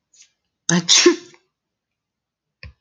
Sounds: Sneeze